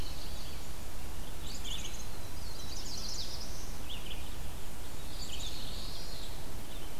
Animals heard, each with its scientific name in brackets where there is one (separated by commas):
Red-eyed Vireo (Vireo olivaceus), Black-capped Chickadee (Poecile atricapillus), Black-throated Blue Warbler (Setophaga caerulescens), Indigo Bunting (Passerina cyanea), Chestnut-sided Warbler (Setophaga pensylvanica), Common Yellowthroat (Geothlypis trichas)